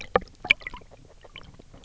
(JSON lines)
{"label": "biophony, grazing", "recorder": "SoundTrap 300"}